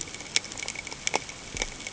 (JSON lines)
{"label": "ambient", "recorder": "HydroMoth"}